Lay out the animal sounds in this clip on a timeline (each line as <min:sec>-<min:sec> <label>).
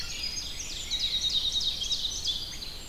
0:00.0-0:00.5 Wood Thrush (Hylocichla mustelina)
0:00.0-0:02.7 Ovenbird (Seiurus aurocapilla)
0:00.0-0:02.9 Red-eyed Vireo (Vireo olivaceus)
0:00.0-0:02.9 Winter Wren (Troglodytes hiemalis)